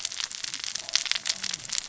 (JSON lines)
{"label": "biophony, cascading saw", "recorder": "SoundTrap 600 or HydroMoth"}